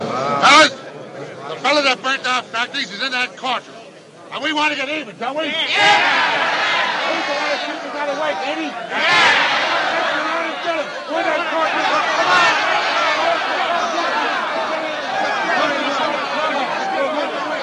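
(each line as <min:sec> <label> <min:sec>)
0:00.0 A man is speaking loudly and angrily. 0:05.2
0:05.2 Several men cheering loudly. 0:17.6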